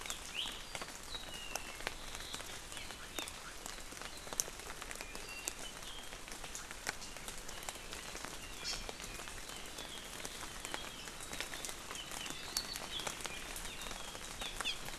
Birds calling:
Apapane (Himatione sanguinea), Hawaii Amakihi (Chlorodrepanis virens)

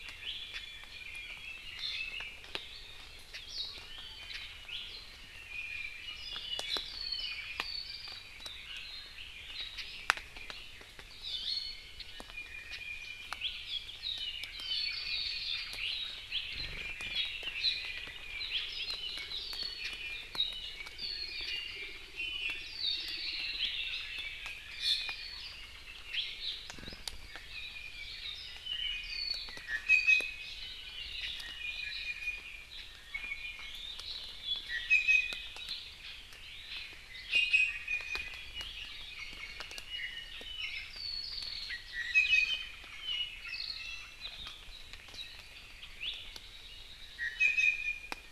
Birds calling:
Red-billed Leiothrix (Leiothrix lutea), Iiwi (Drepanis coccinea), Apapane (Himatione sanguinea)

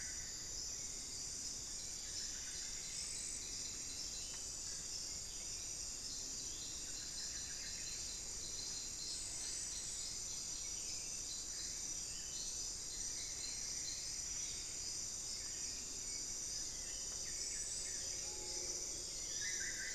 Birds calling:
Solitary Black Cacique (Cacicus solitarius), Screaming Piha (Lipaugus vociferans), Buff-throated Saltator (Saltator maximus), Plumbeous Antbird (Myrmelastes hyperythrus)

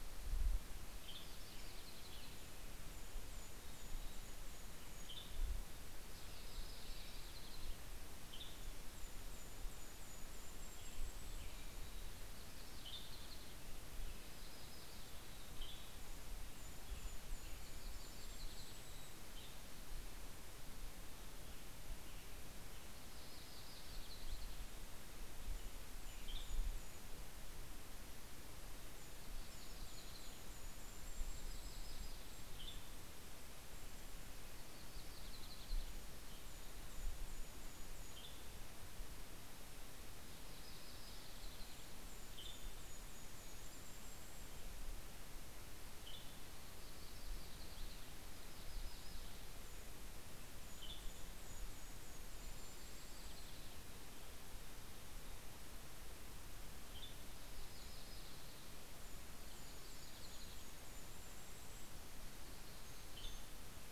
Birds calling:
American Robin (Turdus migratorius), Western Tanager (Piranga ludoviciana), Yellow-rumped Warbler (Setophaga coronata), Golden-crowned Kinglet (Regulus satrapa), Red-breasted Nuthatch (Sitta canadensis)

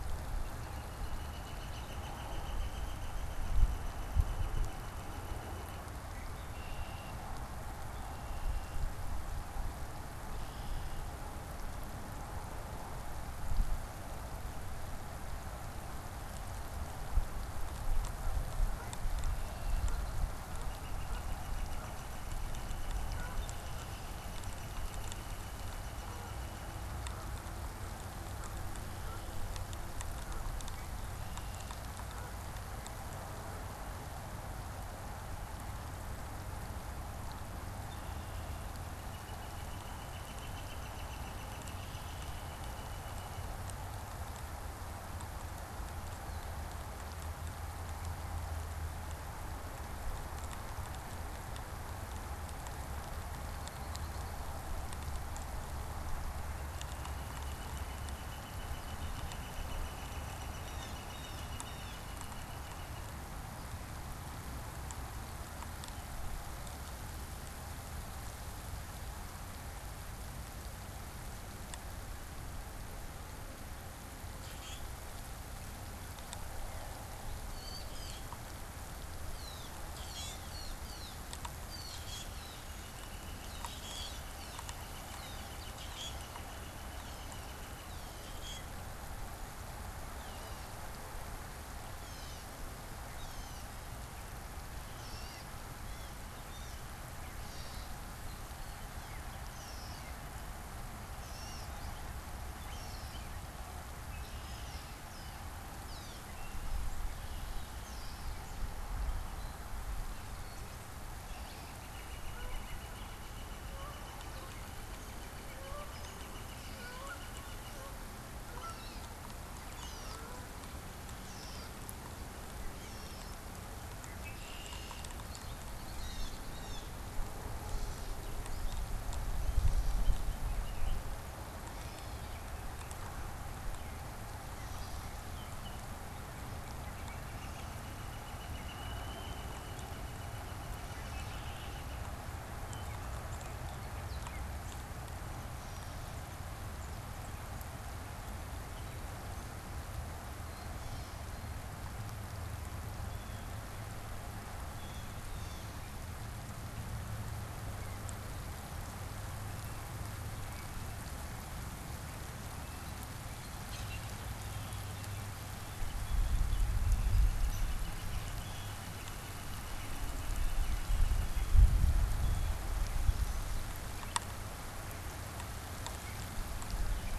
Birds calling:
Canada Goose (Branta canadensis), Gray Catbird (Dumetella carolinensis), Blue Jay (Cyanocitta cristata), Red-winged Blackbird (Agelaius phoeniceus), Northern Flicker (Colaptes auratus), Common Grackle (Quiscalus quiscula)

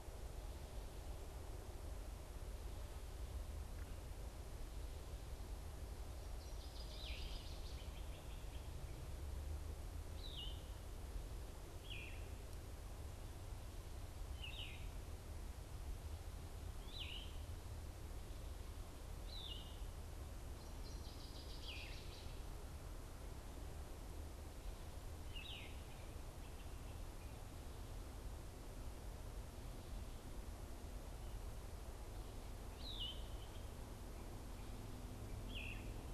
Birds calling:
Northern Waterthrush (Parkesia noveboracensis), Great Crested Flycatcher (Myiarchus crinitus), Yellow-throated Vireo (Vireo flavifrons)

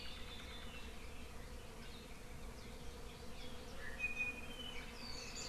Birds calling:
Iiwi (Drepanis coccinea)

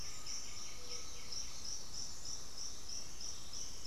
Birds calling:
Undulated Tinamou (Crypturellus undulatus), White-winged Becard (Pachyramphus polychopterus), unidentified bird

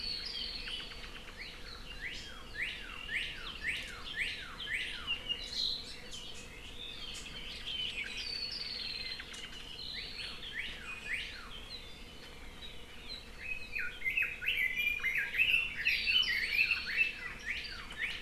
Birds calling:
Red-billed Leiothrix (Leiothrix lutea), Northern Cardinal (Cardinalis cardinalis)

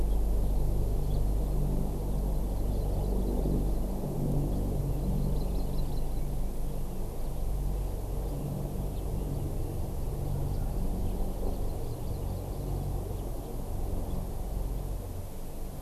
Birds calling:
Hawaii Amakihi (Chlorodrepanis virens)

